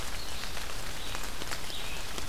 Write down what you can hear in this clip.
Red-eyed Vireo